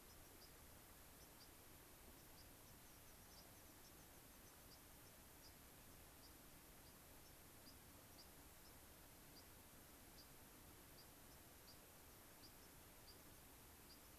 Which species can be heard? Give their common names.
White-crowned Sparrow, American Pipit